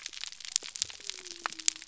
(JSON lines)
{"label": "biophony", "recorder": "SoundTrap 300"}